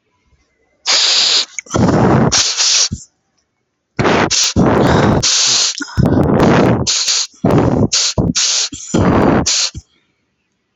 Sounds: Sneeze